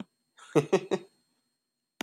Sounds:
Laughter